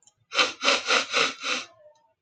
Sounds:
Sniff